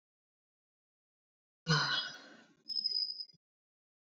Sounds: Sigh